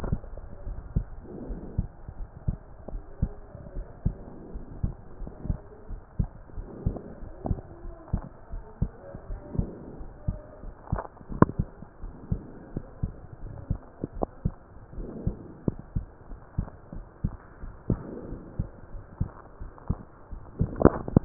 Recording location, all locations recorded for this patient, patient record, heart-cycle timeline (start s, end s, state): pulmonary valve (PV)
aortic valve (AV)+pulmonary valve (PV)+tricuspid valve (TV)+mitral valve (MV)
#Age: Child
#Sex: Female
#Height: 140.0 cm
#Weight: 33.3 kg
#Pregnancy status: False
#Murmur: Absent
#Murmur locations: nan
#Most audible location: nan
#Systolic murmur timing: nan
#Systolic murmur shape: nan
#Systolic murmur grading: nan
#Systolic murmur pitch: nan
#Systolic murmur quality: nan
#Diastolic murmur timing: nan
#Diastolic murmur shape: nan
#Diastolic murmur grading: nan
#Diastolic murmur pitch: nan
#Diastolic murmur quality: nan
#Outcome: Abnormal
#Campaign: 2015 screening campaign
0.00	0.42	unannotated
0.42	0.66	diastole
0.66	0.82	S1
0.82	0.94	systole
0.94	1.10	S2
1.10	1.46	diastole
1.46	1.62	S1
1.62	1.76	systole
1.76	1.90	S2
1.90	2.18	diastole
2.18	2.28	S1
2.28	2.44	systole
2.44	2.60	S2
2.60	2.92	diastole
2.92	3.04	S1
3.04	3.22	systole
3.22	3.36	S2
3.36	3.74	diastole
3.74	3.86	S1
3.86	4.04	systole
4.04	4.18	S2
4.18	4.52	diastole
4.52	4.64	S1
4.64	4.82	systole
4.82	4.96	S2
4.96	5.20	diastole
5.20	5.32	S1
5.32	5.46	systole
5.46	5.60	S2
5.60	5.90	diastole
5.90	6.02	S1
6.02	6.18	systole
6.18	6.30	S2
6.30	6.56	diastole
6.56	6.68	S1
6.68	6.84	systole
6.84	6.98	S2
6.98	7.22	diastole
7.22	7.32	S1
7.32	7.46	systole
7.46	7.62	S2
7.62	7.86	diastole
7.86	7.96	S1
7.96	8.12	systole
8.12	8.26	S2
8.26	8.52	diastole
8.52	8.64	S1
8.64	8.78	systole
8.78	8.92	S2
8.92	9.28	diastole
9.28	9.42	S1
9.42	9.54	systole
9.54	9.70	S2
9.70	9.98	diastole
9.98	10.08	S1
10.08	10.24	systole
10.24	10.40	S2
10.40	10.64	diastole
10.64	10.74	S1
10.74	10.88	systole
10.88	11.02	S2
11.02	11.30	diastole
11.30	11.40	S1
11.40	11.56	systole
11.56	11.70	S2
11.70	12.04	diastole
12.04	12.14	S1
12.14	12.30	systole
12.30	12.44	S2
12.44	12.74	diastole
12.74	12.84	S1
12.84	13.00	systole
13.00	13.14	S2
13.14	13.44	diastole
13.44	13.56	S1
13.56	13.68	systole
13.68	13.82	S2
13.82	14.16	diastole
14.16	14.30	S1
14.30	14.42	systole
14.42	14.56	S2
14.56	14.94	diastole
14.94	15.10	S1
15.10	15.24	systole
15.24	15.38	S2
15.38	15.66	diastole
15.66	15.80	S1
15.80	15.94	systole
15.94	16.08	S2
16.08	16.32	diastole
16.32	16.40	S1
16.40	16.54	systole
16.54	16.68	S2
16.68	16.96	diastole
16.96	17.06	S1
17.06	17.20	systole
17.20	17.32	S2
17.32	17.62	diastole
17.62	17.74	S1
17.74	17.88	systole
17.88	18.02	S2
18.02	18.28	diastole
18.28	18.40	S1
18.40	18.58	systole
18.58	18.70	S2
18.70	18.94	diastole
18.94	19.04	S1
19.04	19.18	systole
19.18	19.32	S2
19.32	19.62	diastole
19.62	19.72	S1
19.72	19.86	systole
19.86	19.98	S2
19.98	20.25	diastole
20.25	21.25	unannotated